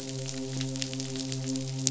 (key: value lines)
label: biophony, midshipman
recorder: SoundTrap 500